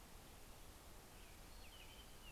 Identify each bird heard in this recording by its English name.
American Robin, Townsend's Solitaire